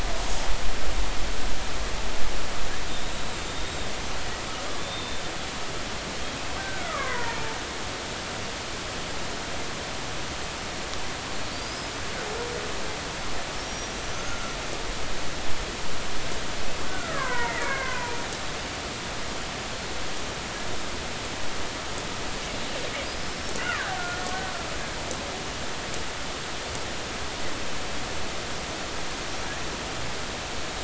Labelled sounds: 2.9	3.9	killer whale, Bigg's (transient), 3.5 to 7.6 kHz
4.7	5.2	killer whale, Bigg's (transient), 3.4 to 3.7 kHz
6.6	7.6	killer whale, Bigg's (transient), 0.80 to 1.6 kHz
11.5	11.9	killer whale, Bigg's (transient), 4.5 to 5.2 kHz
13.7	14.5	killer whale, Bigg's (transient), 1.3 to 6.0 kHz
16.9	18.2	killer whale, Bigg's (transient), 0.86 to 2.4 kHz
23.2	24.0	killer whale, Bigg's (transient), 1.0 to 5.5 kHz

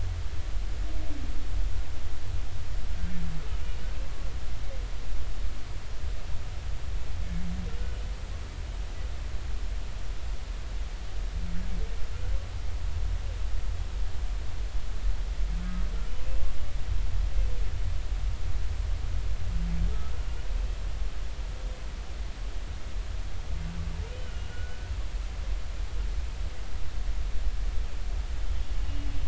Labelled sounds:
3.6	3.8	humpback whale, 2.7 to 2.9 kHz
24.3	24.9	humpback whale, 1.4 to 3.0 kHz
28.8	29.1	humpback whale, 2.8 to 2.9 kHz

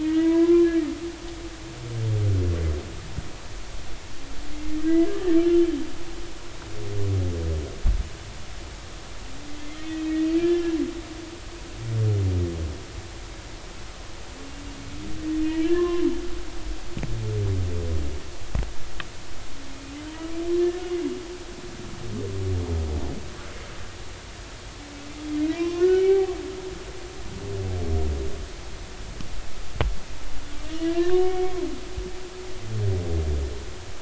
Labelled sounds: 0.0	0.9	humpback whale, 0.93 to 2.5 kHz
4.8	5.7	humpback whale, 1.6 to 3.1 kHz
9.7	10.8	humpback whale, 1.6 to 3.2 kHz
15.4	16.0	humpback whale, 0.99 to 3.1 kHz
20.5	20.8	humpback whale, 1.7 to 1.9 kHz
25.5	26.3	humpback whale, 0.80 to 3.1 kHz
30.6	31.5	humpback whale, 1.6 to 3.0 kHz

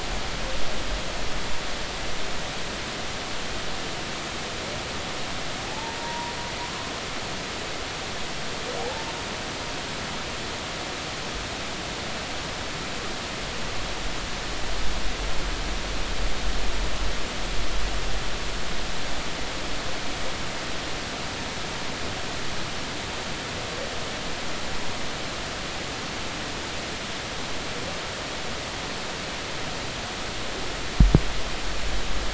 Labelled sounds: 5.6	6.9	humpback whale, 0.80 to 1.1 kHz
8.8	9.1	humpback whale, 0.80 to 0.93 kHz

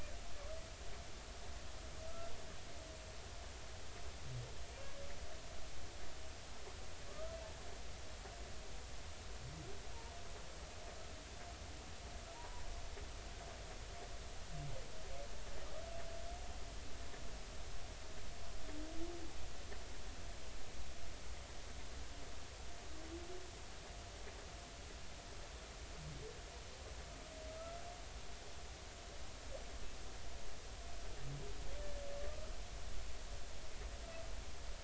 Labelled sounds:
7.1	7.4	humpback whale, 1.1 to 1.3 kHz
12.3	12.6	humpback whale, 0.86 to 1.1 kHz

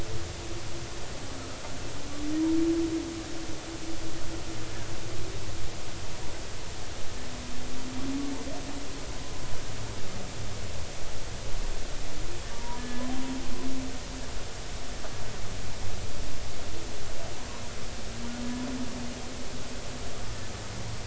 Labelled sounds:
12.5	13.0	humpback whale, 0.90 to 1.8 kHz

